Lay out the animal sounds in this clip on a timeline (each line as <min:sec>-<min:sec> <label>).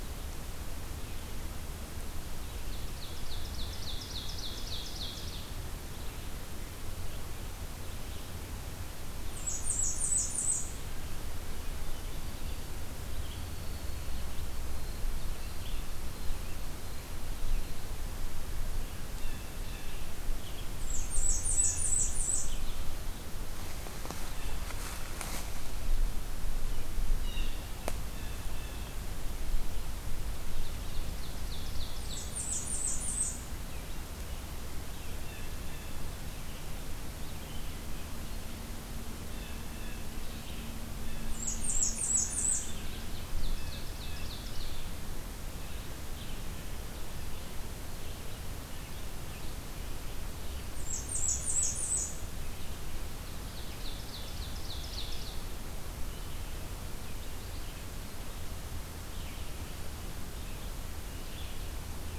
0:02.5-0:05.5 Ovenbird (Seiurus aurocapilla)
0:05.8-0:17.8 Red-eyed Vireo (Vireo olivaceus)
0:09.1-0:10.8 Blackburnian Warbler (Setophaga fusca)
0:13.0-0:17.2 Broad-winged Hawk (Buteo platypterus)
0:19.0-0:20.1 Blue Jay (Cyanocitta cristata)
0:20.4-0:23.1 Red-eyed Vireo (Vireo olivaceus)
0:20.6-0:22.6 Blackburnian Warbler (Setophaga fusca)
0:21.4-0:21.9 Blue Jay (Cyanocitta cristata)
0:27.3-0:29.0 Blue Jay (Cyanocitta cristata)
0:30.4-0:32.3 Ovenbird (Seiurus aurocapilla)
0:31.9-0:33.4 Blackburnian Warbler (Setophaga fusca)
0:35.0-0:36.0 Blue Jay (Cyanocitta cristata)
0:37.1-1:02.2 Red-eyed Vireo (Vireo olivaceus)
0:39.1-0:40.2 Blue Jay (Cyanocitta cristata)
0:41.2-0:42.8 Blackburnian Warbler (Setophaga fusca)
0:42.6-0:44.7 Ovenbird (Seiurus aurocapilla)
0:50.7-0:52.1 Blackburnian Warbler (Setophaga fusca)
0:53.3-0:55.5 Ovenbird (Seiurus aurocapilla)